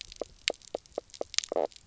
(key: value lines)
label: biophony, knock croak
recorder: SoundTrap 300